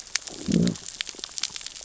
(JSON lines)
{"label": "biophony, growl", "recorder": "SoundTrap 600 or HydroMoth"}